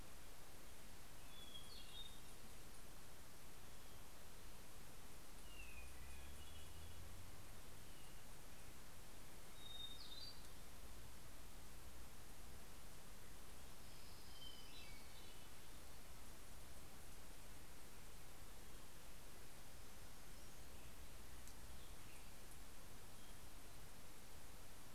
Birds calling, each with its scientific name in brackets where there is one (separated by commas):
Hermit Warbler (Setophaga occidentalis), Hermit Thrush (Catharus guttatus), Orange-crowned Warbler (Leiothlypis celata)